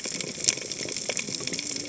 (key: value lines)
label: biophony, cascading saw
recorder: HydroMoth